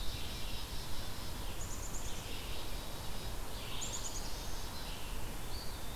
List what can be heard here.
Black-capped Chickadee, Red-eyed Vireo, Black-throated Blue Warbler, Eastern Wood-Pewee